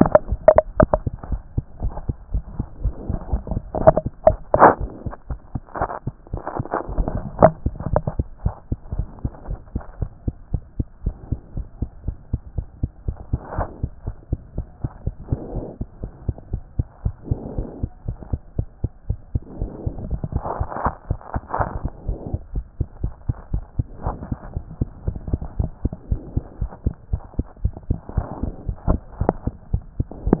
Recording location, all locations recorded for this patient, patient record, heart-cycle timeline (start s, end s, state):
mitral valve (MV)
aortic valve (AV)+mitral valve (MV)
#Age: Child
#Sex: Male
#Height: 93.0 cm
#Weight: 15.7 kg
#Pregnancy status: False
#Murmur: Absent
#Murmur locations: nan
#Most audible location: nan
#Systolic murmur timing: nan
#Systolic murmur shape: nan
#Systolic murmur grading: nan
#Systolic murmur pitch: nan
#Systolic murmur quality: nan
#Diastolic murmur timing: nan
#Diastolic murmur shape: nan
#Diastolic murmur grading: nan
#Diastolic murmur pitch: nan
#Diastolic murmur quality: nan
#Outcome: Normal
#Campaign: 2014 screening campaign
0.00	8.56	unannotated
8.56	8.68	systole
8.68	8.78	S2
8.78	8.92	diastole
8.92	9.06	S1
9.06	9.22	systole
9.22	9.32	S2
9.32	9.48	diastole
9.48	9.60	S1
9.60	9.72	systole
9.72	9.82	S2
9.82	9.98	diastole
9.98	10.10	S1
10.10	10.24	systole
10.24	10.36	S2
10.36	10.52	diastole
10.52	10.62	S1
10.62	10.76	systole
10.76	10.88	S2
10.88	11.02	diastole
11.02	11.14	S1
11.14	11.28	systole
11.28	11.42	S2
11.42	11.56	diastole
11.56	11.66	S1
11.66	11.78	systole
11.78	11.90	S2
11.90	12.06	diastole
12.06	12.16	S1
12.16	12.30	systole
12.30	12.40	S2
12.40	12.56	diastole
12.56	12.66	S1
12.66	12.80	systole
12.80	12.90	S2
12.90	13.06	diastole
13.06	13.16	S1
13.16	13.30	systole
13.30	13.44	S2
13.44	13.56	diastole
13.56	13.68	S1
13.68	13.80	systole
13.80	13.90	S2
13.90	14.06	diastole
14.06	14.16	S1
14.16	14.28	systole
14.28	14.40	S2
14.40	14.56	diastole
14.56	14.66	S1
14.66	14.80	systole
14.80	14.92	S2
14.92	15.04	diastole
15.04	15.14	S1
15.14	15.28	systole
15.28	15.40	S2
15.40	15.54	diastole
15.54	15.68	S1
15.68	15.80	systole
15.80	15.88	S2
15.88	16.02	diastole
16.02	16.12	S1
16.12	16.26	systole
16.26	16.36	S2
16.36	16.50	diastole
16.50	16.62	S1
16.62	16.76	systole
16.76	16.88	S2
16.88	17.02	diastole
17.02	17.14	S1
17.14	17.28	systole
17.28	17.42	S2
17.42	17.56	diastole
17.56	17.68	S1
17.68	17.80	systole
17.80	17.90	S2
17.90	18.06	diastole
18.06	18.18	S1
18.18	18.30	systole
18.30	18.40	S2
18.40	18.56	diastole
18.56	18.66	S1
18.66	18.80	systole
18.80	18.90	S2
18.90	19.06	diastole
19.06	19.18	S1
19.18	19.32	systole
19.32	19.42	S2
19.42	19.60	diastole
19.60	19.74	S1
19.74	19.84	systole
19.84	19.94	S2
19.94	20.06	diastole
20.06	20.20	S1
20.20	20.32	systole
20.32	20.44	S2
20.44	20.58	diastole
20.58	20.68	S1
20.68	20.84	systole
20.84	20.94	S2
20.94	21.08	diastole
21.08	21.18	S1
21.18	21.32	systole
21.32	21.42	S2
21.42	21.58	diastole
21.58	21.68	S1
21.68	21.82	systole
21.82	21.92	S2
21.92	22.06	diastole
22.06	22.20	S1
22.20	22.32	systole
22.32	22.42	S2
22.42	22.54	diastole
22.54	22.64	S1
22.64	22.76	systole
22.76	22.88	S2
22.88	23.02	diastole
23.02	23.14	S1
23.14	23.26	systole
23.26	23.36	S2
23.36	23.52	diastole
23.52	23.64	S1
23.64	23.78	systole
23.78	23.88	S2
23.88	24.04	diastole
24.04	24.18	S1
24.18	24.30	systole
24.30	24.40	S2
24.40	24.54	diastole
24.54	24.64	S1
24.64	24.80	systole
24.80	24.92	S2
24.92	25.06	diastole
25.06	25.16	S1
25.16	25.26	systole
25.26	25.40	S2
25.40	25.58	diastole
25.58	25.72	S1
25.72	25.82	systole
25.82	25.92	S2
25.92	26.08	diastole
26.08	26.20	S1
26.20	26.34	systole
26.34	26.44	S2
26.44	26.60	diastole
26.60	26.70	S1
26.70	26.82	systole
26.82	26.96	S2
26.96	27.10	diastole
27.10	27.20	S1
27.20	27.34	systole
27.34	27.46	S2
27.46	27.60	diastole
27.60	27.72	S1
27.72	27.86	systole
27.86	28.02	S2
28.02	28.16	diastole
28.16	28.30	S1
28.30	28.42	systole
28.42	28.54	S2
28.54	28.66	diastole
28.66	28.76	S1
28.76	28.88	systole
28.88	29.04	S2
29.04	29.18	diastole
29.18	29.36	S1
29.36	29.44	systole
29.44	29.54	S2
29.54	29.72	diastole
29.72	29.86	S1
29.86	29.98	systole
29.98	30.08	S2
30.08	30.24	diastole
30.24	30.40	S1